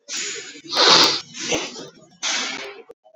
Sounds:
Sneeze